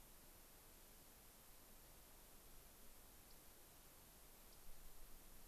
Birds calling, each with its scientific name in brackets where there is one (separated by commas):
Yellow-rumped Warbler (Setophaga coronata)